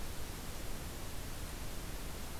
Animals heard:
forest ambience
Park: Katahdin Woods and Waters National Monument